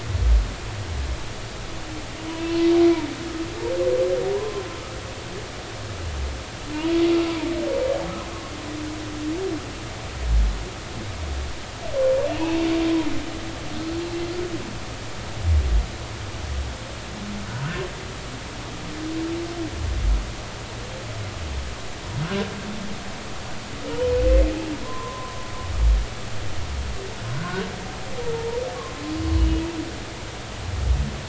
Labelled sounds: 4.3	4.6	humpback whale, 0.90 to 1.1 kHz
24.8	25.4	humpback whale, 0.93 to 1.2 kHz
27.4	27.6	humpback whale, 1.4 to 1.6 kHz
28.7	29.0	humpback whale, 0.99 to 1.2 kHz

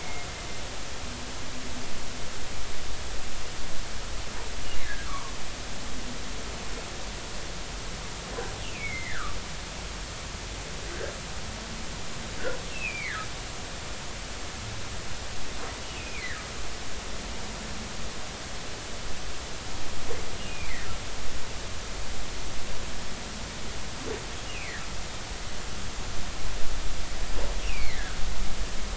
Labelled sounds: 0.0	0.3	humpback whale, 2.1 to 2.2 kHz
5.0	5.3	humpback whale, 0.90 to 1.4 kHz
8.6	9.4	humpback whale, 1.1 to 3.0 kHz
12.7	13.3	humpback whale, 1.2 to 2.8 kHz
16.0	16.4	humpback whale, 1.6 to 2.8 kHz
20.5	20.7	humpback whale, 2.2 to 2.5 kHz
24.5	24.8	humpback whale, 1.6 to 3.0 kHz
27.6	28.2	humpback whale, 1.4 to 2.9 kHz

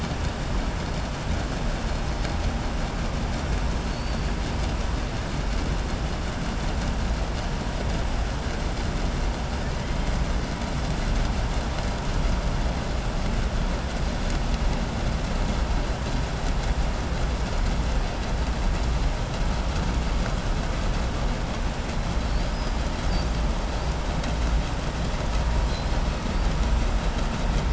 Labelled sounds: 3.8	4.3	killer whale, southern resident, 3.6 to 4.7 kHz
22.2	22.8	killer whale, southern resident, 4.0 to 6.0 kHz

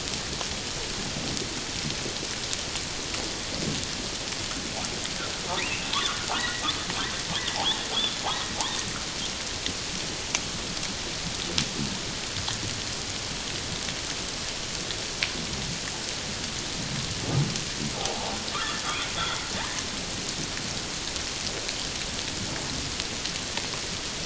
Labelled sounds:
5.6	6.6	humpback whale, 0.88 to 2.9 kHz
7.5	7.8	humpback whale, 0.78 to 1.1 kHz
17.9	18.8	humpback whale, 0.78 to 1.4 kHz

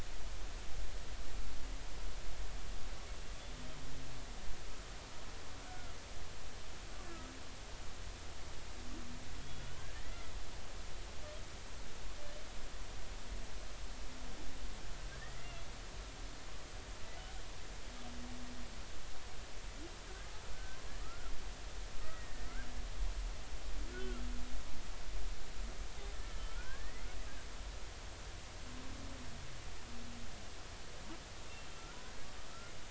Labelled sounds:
5.6	6.0	humpback whale, 1.3 to 1.5 kHz
9.4	10.3	humpback whale, 1.5 to 3.5 kHz
15.2	15.6	humpback whale, 1.7 to 2.1 kHz
20.5	21.3	humpback whale, 1.2 to 1.6 kHz
22.0	22.6	humpback whale, 1.8 to 2.1 kHz
24.9	25.2	humpback whale, 1.3 to 1.5 kHz
26.2	27.1	humpback whale, 1.3 to 2.1 kHz
31.8	32.2	humpback whale, 1.3 to 1.6 kHz

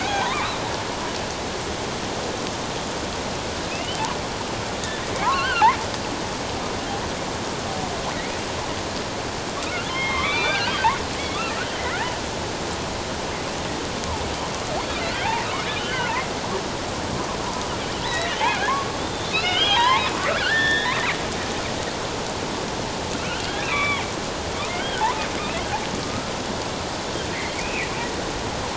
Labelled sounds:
0.0	0.5	killer whale, offshore, 0.78 to 6.7 kHz
3.7	4.0	killer whale, offshore, 2.4 to 3.2 kHz
5.2	5.7	killer whale, offshore, 0.78 to 3.2 kHz
9.9	10.8	killer whale, offshore, 1.0 to 3.9 kHz
15.0	15.5	killer whale, offshore, 1.4 to 2.9 kHz
15.8	16.1	killer whale, offshore, 1.3 to 3.1 kHz
18.0	21.0	killer whale, offshore, 0.78 to 5.4 kHz
23.2	24.1	killer whale, offshore, 0.78 to 3.7 kHz
24.8	25.0	killer whale, offshore, 2.9 to 3.3 kHz
26.0	26.3	killer whale, offshore, 1.2 to 1.4 kHz
27.6	27.9	killer whale, offshore, 2.0 to 2.8 kHz

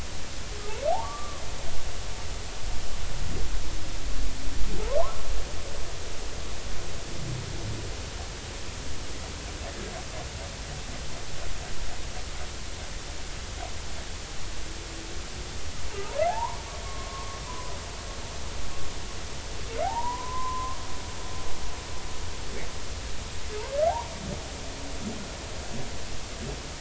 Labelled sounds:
0.9	1.4	humpback whale, 0.80 to 1.2 kHz
16.3	17.8	humpback whale, 0.80 to 1.2 kHz
19.8	20.8	humpback whale, 0.80 to 1.2 kHz
23.9	24.1	humpback whale, 0.80 to 1.2 kHz

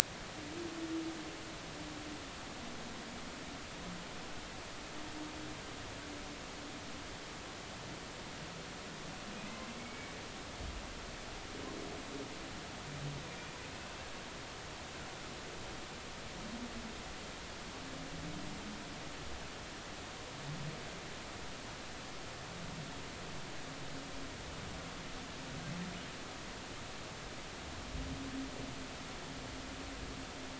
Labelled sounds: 9.8	10.1	humpback whale, 2.1 to 2.3 kHz

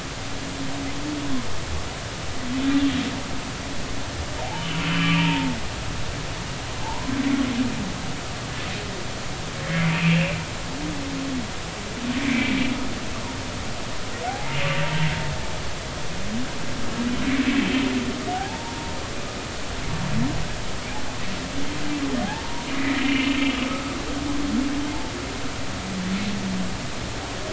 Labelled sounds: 4.4	5.6	humpback whale, 0.80 to 3.1 kHz
6.8	7.1	humpback whale, 0.80 to 1.1 kHz
9.7	10.4	humpback whale, 2.0 to 2.8 kHz
12.2	12.6	humpback whale, 2.0 to 2.4 kHz
14.2	15.1	humpback whale, 0.80 to 0.96 kHz
18.3	18.7	humpback whale, 0.80 to 0.99 kHz
22.2	22.7	humpback whale, 0.80 to 1.0 kHz
23.4	23.6	humpback whale, 3.2 to 3.3 kHz

